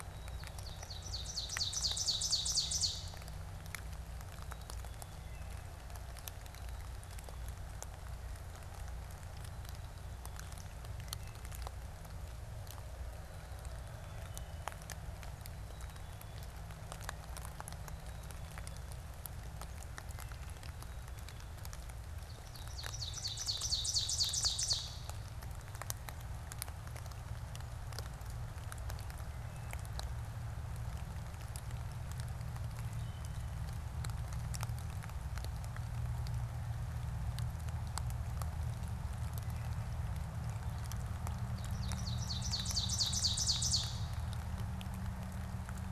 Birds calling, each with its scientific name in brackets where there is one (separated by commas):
Wood Thrush (Hylocichla mustelina), Ovenbird (Seiurus aurocapilla), Black-capped Chickadee (Poecile atricapillus)